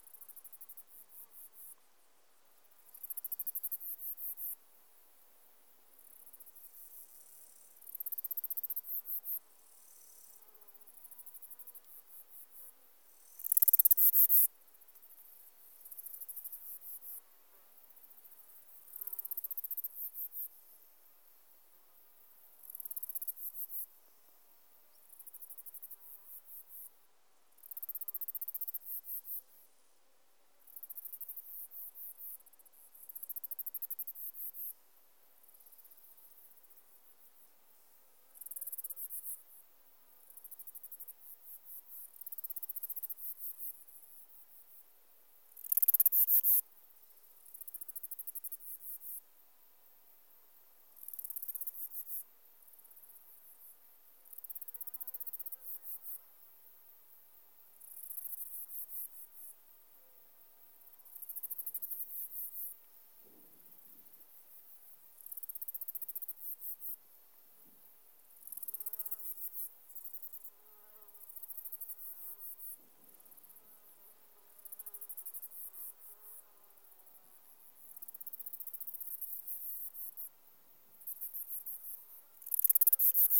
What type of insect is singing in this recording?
orthopteran